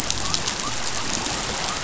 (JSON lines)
{"label": "biophony", "recorder": "SoundTrap 500"}